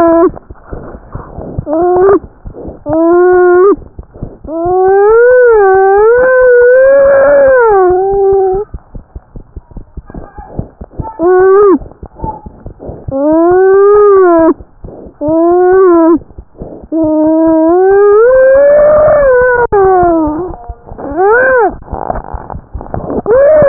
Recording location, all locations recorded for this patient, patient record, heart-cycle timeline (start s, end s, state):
tricuspid valve (TV)
tricuspid valve (TV)
#Age: Child
#Sex: Male
#Height: 80.0 cm
#Weight: 10.39 kg
#Pregnancy status: False
#Murmur: Unknown
#Murmur locations: nan
#Most audible location: nan
#Systolic murmur timing: nan
#Systolic murmur shape: nan
#Systolic murmur grading: nan
#Systolic murmur pitch: nan
#Systolic murmur quality: nan
#Diastolic murmur timing: nan
#Diastolic murmur shape: nan
#Diastolic murmur grading: nan
#Diastolic murmur pitch: nan
#Diastolic murmur quality: nan
#Outcome: Abnormal
#Campaign: 2015 screening campaign
0.00	8.90	unannotated
8.90	9.03	S1
9.03	9.14	systole
9.14	9.20	S2
9.20	9.33	diastole
9.33	9.42	S1
9.42	9.53	systole
9.53	9.61	S2
9.61	9.73	diastole
9.73	9.84	S1
9.84	9.93	systole
9.93	10.02	S2
10.02	10.15	diastole
10.15	10.24	S1
10.24	10.36	systole
10.36	10.43	S2
10.43	10.56	diastole
10.56	10.64	S1
10.64	10.79	systole
10.79	10.86	S2
10.86	10.96	diastole
10.96	11.03	S1
11.03	23.68	unannotated